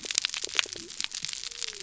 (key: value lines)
label: biophony
recorder: SoundTrap 300